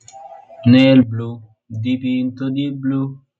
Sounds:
Sigh